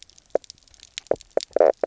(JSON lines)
{"label": "biophony, knock croak", "recorder": "SoundTrap 300"}